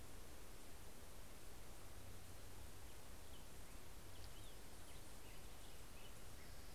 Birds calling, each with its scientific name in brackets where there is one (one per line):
Orange-crowned Warbler (Leiothlypis celata)
Black-headed Grosbeak (Pheucticus melanocephalus)